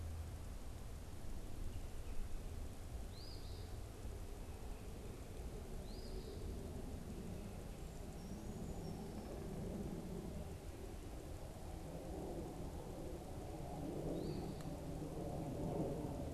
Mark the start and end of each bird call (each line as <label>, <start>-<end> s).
Eastern Phoebe (Sayornis phoebe), 2.9-6.4 s
Brown Creeper (Certhia americana), 7.9-9.2 s
Eastern Phoebe (Sayornis phoebe), 14.0-14.7 s